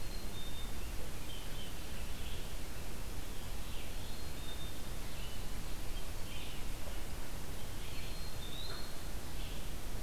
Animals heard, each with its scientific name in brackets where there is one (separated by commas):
Red-eyed Vireo (Vireo olivaceus), Blue Jay (Cyanocitta cristata), Eastern Wood-Pewee (Contopus virens), Black-capped Chickadee (Poecile atricapillus)